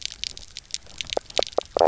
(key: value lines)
label: biophony, knock croak
recorder: SoundTrap 300